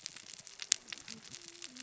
{"label": "biophony, cascading saw", "recorder": "SoundTrap 600 or HydroMoth"}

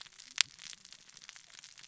{"label": "biophony, cascading saw", "recorder": "SoundTrap 600 or HydroMoth"}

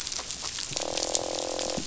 {"label": "biophony, croak", "recorder": "SoundTrap 500"}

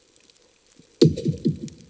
{"label": "anthrophony, bomb", "recorder": "HydroMoth"}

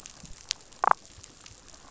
{"label": "biophony, damselfish", "recorder": "SoundTrap 500"}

